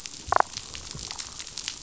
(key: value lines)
label: biophony, damselfish
recorder: SoundTrap 500